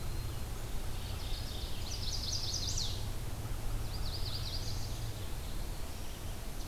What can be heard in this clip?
Red-eyed Vireo, Mourning Warbler, Chestnut-sided Warbler, Black-throated Blue Warbler